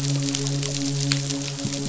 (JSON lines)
{"label": "biophony, midshipman", "recorder": "SoundTrap 500"}